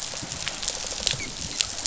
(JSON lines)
{"label": "biophony, rattle response", "recorder": "SoundTrap 500"}